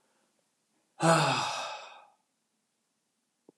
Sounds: Sigh